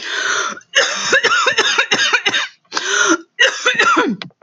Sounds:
Cough